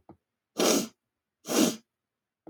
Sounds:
Sniff